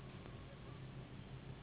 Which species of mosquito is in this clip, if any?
Anopheles gambiae s.s.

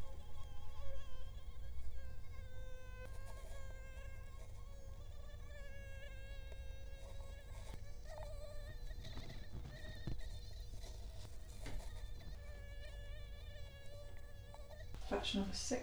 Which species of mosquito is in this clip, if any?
Culex quinquefasciatus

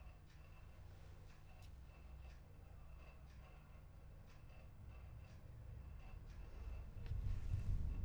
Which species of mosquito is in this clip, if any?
no mosquito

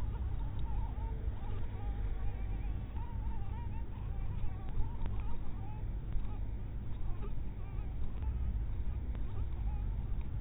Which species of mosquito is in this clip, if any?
mosquito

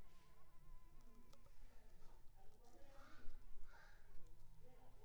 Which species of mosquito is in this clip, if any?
Anopheles coustani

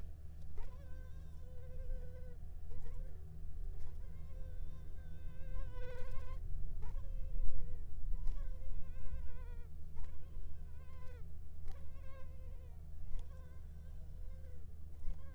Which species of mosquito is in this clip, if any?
Culex pipiens complex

